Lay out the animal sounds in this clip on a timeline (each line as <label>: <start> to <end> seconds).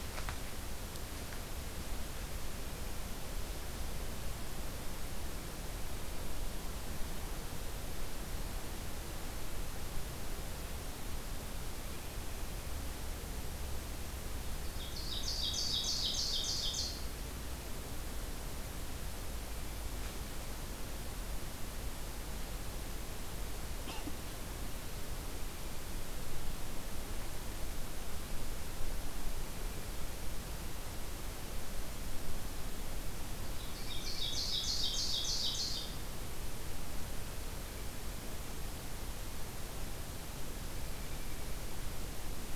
Ovenbird (Seiurus aurocapilla): 14.3 to 17.4 seconds
Ovenbird (Seiurus aurocapilla): 33.2 to 36.3 seconds